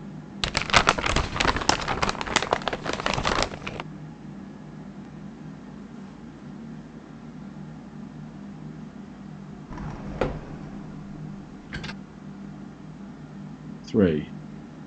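At 0.4 seconds, there is crumpling. Afterwards, at 9.7 seconds, a wooden door opens. Finally, at 13.9 seconds, a voice says "three." A continuous background noise sits beneath the sounds.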